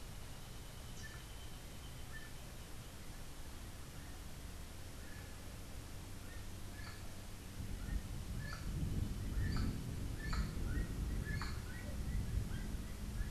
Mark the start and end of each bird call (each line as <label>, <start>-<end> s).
Gray-headed Chachalaca (Ortalis cinereiceps), 0.8-2.4 s
Gray-headed Chachalaca (Ortalis cinereiceps), 6.5-11.6 s